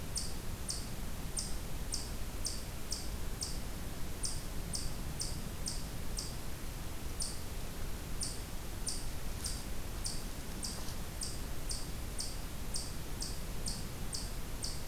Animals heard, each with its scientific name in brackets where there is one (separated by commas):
Eastern Chipmunk (Tamias striatus)